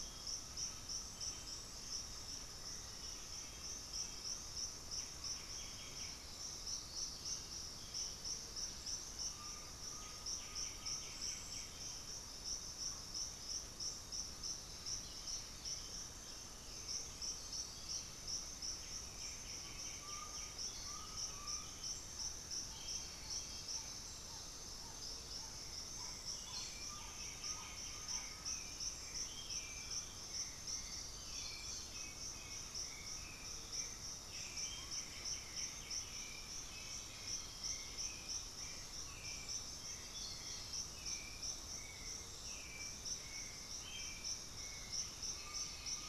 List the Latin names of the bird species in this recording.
Trogon viridis, Turdus hauxwelli, Pachyramphus polychopterus, Crypturellus undulatus, Myrmophylax atrothorax, Psarocolius angustifrons, Trogon melanurus, Galbula cyanescens, Dendroma erythroptera